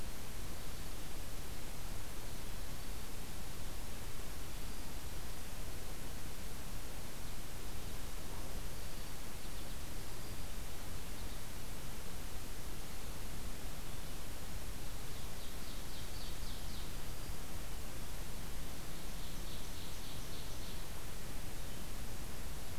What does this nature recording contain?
Red-eyed Vireo, Ovenbird